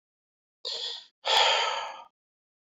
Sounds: Sigh